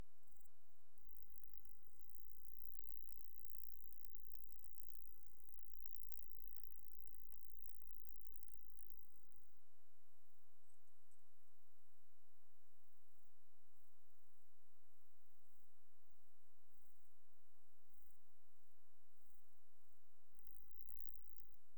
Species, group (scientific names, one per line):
Stenobothrus rubicundulus
Orthoptera